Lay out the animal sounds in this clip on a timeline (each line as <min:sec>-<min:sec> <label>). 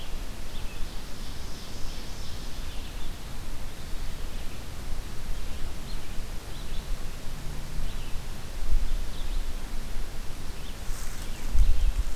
0:00.0-0:12.0 Red-eyed Vireo (Vireo olivaceus)
0:00.4-0:03.0 Ovenbird (Seiurus aurocapilla)